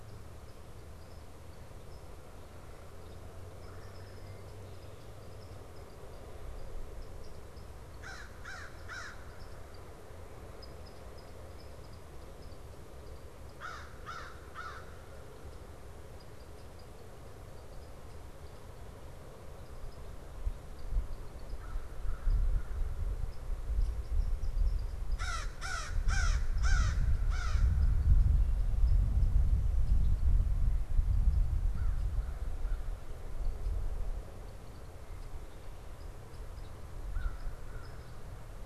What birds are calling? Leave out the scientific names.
Red-bellied Woodpecker, American Crow